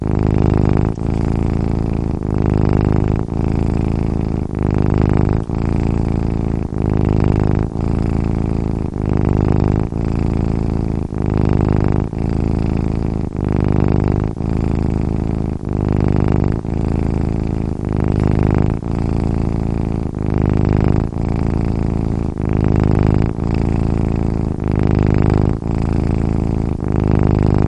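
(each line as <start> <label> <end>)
0.0 A cat purrs loudly and repeatedly. 27.7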